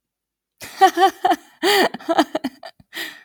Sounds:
Laughter